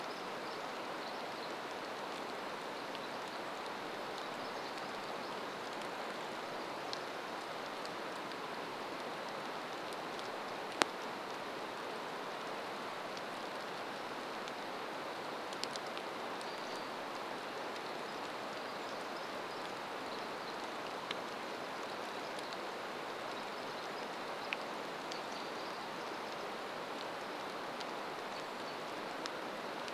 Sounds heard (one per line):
rain
Pacific Wren song
American Robin call